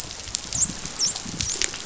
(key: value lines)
label: biophony, dolphin
recorder: SoundTrap 500